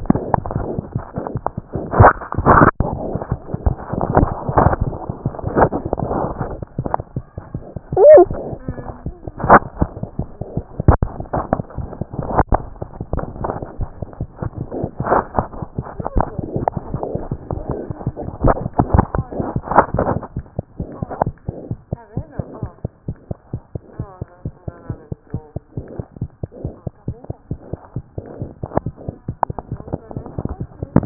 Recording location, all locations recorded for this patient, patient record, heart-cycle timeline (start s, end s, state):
mitral valve (MV)
aortic valve (AV)+mitral valve (MV)
#Age: Infant
#Sex: Male
#Height: 70.0 cm
#Weight: 9.4 kg
#Pregnancy status: False
#Murmur: Absent
#Murmur locations: nan
#Most audible location: nan
#Systolic murmur timing: nan
#Systolic murmur shape: nan
#Systolic murmur grading: nan
#Systolic murmur pitch: nan
#Systolic murmur quality: nan
#Diastolic murmur timing: nan
#Diastolic murmur shape: nan
#Diastolic murmur grading: nan
#Diastolic murmur pitch: nan
#Diastolic murmur quality: nan
#Outcome: Normal
#Campaign: 2014 screening campaign
0.00	21.70	unannotated
21.70	21.78	S1
21.78	21.92	systole
21.92	22.00	S2
22.00	22.16	diastole
22.16	22.26	S1
22.26	22.38	systole
22.38	22.46	S2
22.46	22.62	diastole
22.62	22.70	S1
22.70	22.84	systole
22.84	22.92	S2
22.92	23.08	diastole
23.08	23.16	S1
23.16	23.30	systole
23.30	23.38	S2
23.38	23.54	diastole
23.54	23.62	S1
23.62	23.74	systole
23.74	23.82	S2
23.82	24.00	diastole
24.00	24.08	S1
24.08	24.20	systole
24.20	24.28	S2
24.28	24.46	diastole
24.46	24.54	S1
24.54	24.66	systole
24.66	24.74	S2
24.74	24.90	diastole
24.90	24.98	S1
24.98	25.11	systole
25.11	25.18	S2
25.18	25.34	diastole
25.34	25.42	S1
25.42	25.54	systole
25.54	25.62	S2
25.62	25.78	diastole
25.78	25.86	S1
25.86	25.98	systole
25.98	26.06	S2
26.06	26.22	diastole
26.22	26.30	S1
26.30	26.42	systole
26.42	26.50	S2
26.50	26.64	diastole
26.64	26.74	S1
26.74	26.85	systole
26.85	26.92	S2
26.92	27.08	diastole
27.08	27.16	S1
27.16	27.28	systole
27.28	27.36	S2
27.36	27.52	diastole
27.52	27.60	S1
27.60	27.72	systole
27.72	27.80	S2
27.80	27.96	diastole
27.96	28.04	S1
28.04	28.16	systole
28.16	28.25	S2
28.25	28.40	diastole
28.40	31.06	unannotated